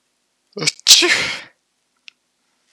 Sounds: Sneeze